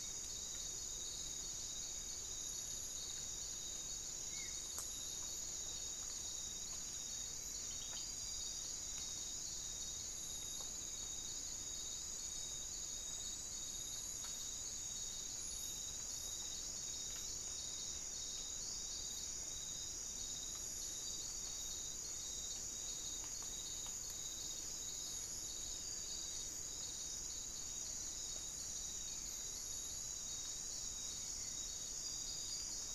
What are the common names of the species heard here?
Spot-winged Antshrike, unidentified bird